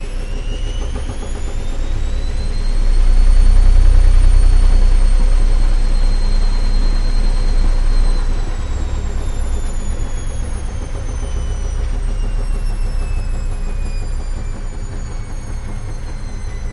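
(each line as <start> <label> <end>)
0.0 A washing machine runs a fast spin cycle, producing a loud humming sound that gradually quiets down. 16.7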